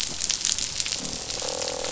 {"label": "biophony, croak", "recorder": "SoundTrap 500"}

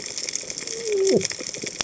{"label": "biophony, cascading saw", "recorder": "HydroMoth"}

